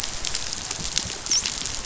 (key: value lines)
label: biophony, dolphin
recorder: SoundTrap 500